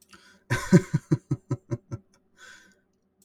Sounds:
Laughter